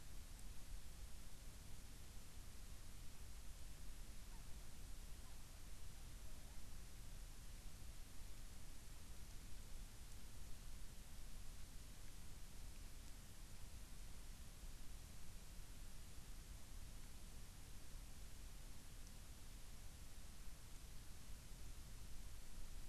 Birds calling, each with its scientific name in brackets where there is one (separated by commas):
Hawaiian Petrel (Pterodroma sandwichensis)